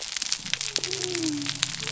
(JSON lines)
{"label": "biophony", "recorder": "SoundTrap 300"}